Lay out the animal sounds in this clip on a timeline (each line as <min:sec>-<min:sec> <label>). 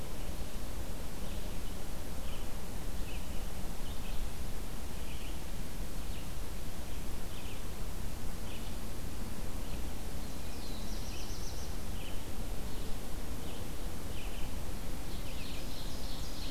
0:00.0-0:16.5 Red-eyed Vireo (Vireo olivaceus)
0:10.1-0:11.9 Black-throated Blue Warbler (Setophaga caerulescens)
0:15.1-0:16.5 Ovenbird (Seiurus aurocapilla)